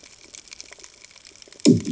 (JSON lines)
{"label": "anthrophony, bomb", "recorder": "HydroMoth"}